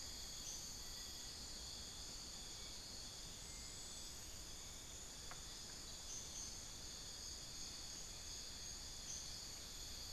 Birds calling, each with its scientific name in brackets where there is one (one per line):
Thrush-like Wren (Campylorhynchus turdinus)
unidentified bird
Bartlett's Tinamou (Crypturellus bartletti)